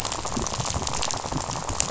{"label": "biophony, rattle", "recorder": "SoundTrap 500"}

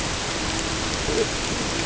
{"label": "ambient", "recorder": "HydroMoth"}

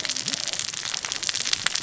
{"label": "biophony, cascading saw", "recorder": "SoundTrap 600 or HydroMoth"}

